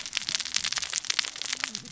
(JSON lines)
{"label": "biophony, cascading saw", "recorder": "SoundTrap 600 or HydroMoth"}